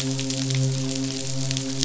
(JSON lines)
{"label": "biophony, midshipman", "recorder": "SoundTrap 500"}